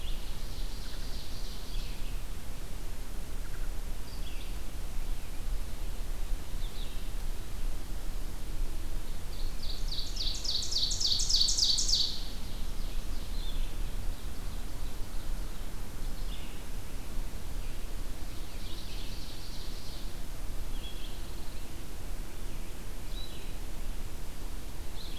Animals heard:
Red-eyed Vireo (Vireo olivaceus)
Pine Warbler (Setophaga pinus)
Ovenbird (Seiurus aurocapilla)

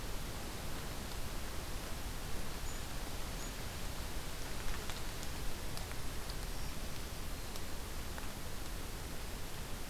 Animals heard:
Black-throated Green Warbler (Setophaga virens)

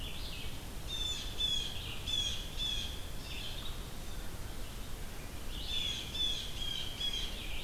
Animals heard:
Red-eyed Vireo (Vireo olivaceus)
Blue Jay (Cyanocitta cristata)

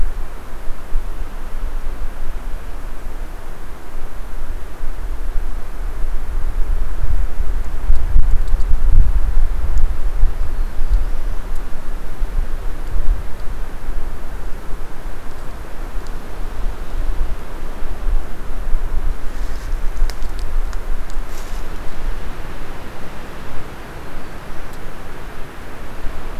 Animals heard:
Black-throated Blue Warbler (Setophaga caerulescens)

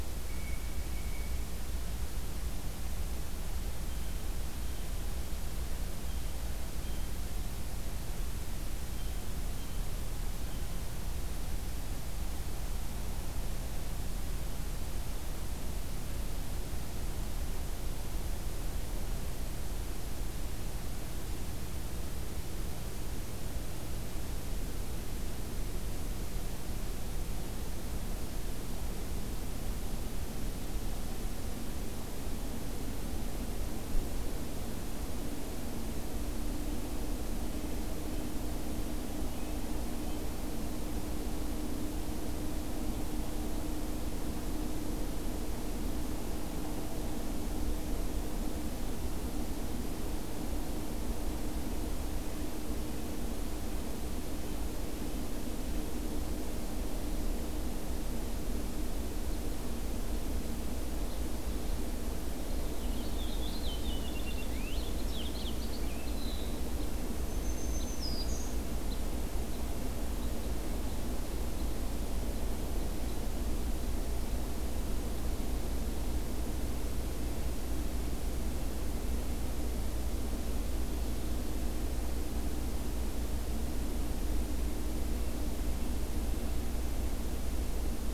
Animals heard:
Purple Finch (Haemorhous purpureus)
Red Crossbill (Loxia curvirostra)
Blue Jay (Cyanocitta cristata)
Black-throated Green Warbler (Setophaga virens)

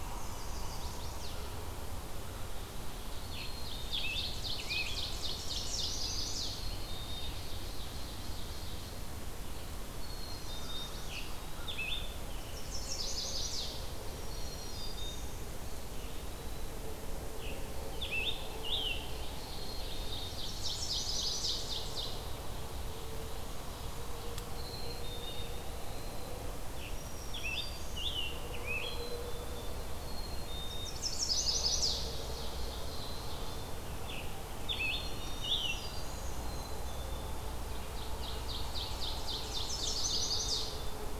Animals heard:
Black-throated Green Warbler (Setophaga virens)
Chestnut-sided Warbler (Setophaga pensylvanica)
Scarlet Tanager (Piranga olivacea)
Black-capped Chickadee (Poecile atricapillus)
Eastern Wood-Pewee (Contopus virens)
Ovenbird (Seiurus aurocapilla)

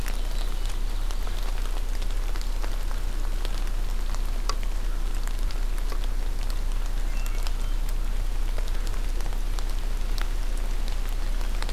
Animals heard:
Hermit Thrush (Catharus guttatus)
Ovenbird (Seiurus aurocapilla)

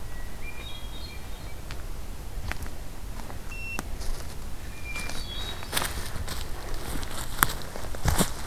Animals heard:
Hermit Thrush (Catharus guttatus)

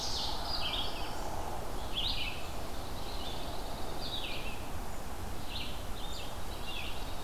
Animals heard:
Red-eyed Vireo (Vireo olivaceus)
Dark-eyed Junco (Junco hyemalis)

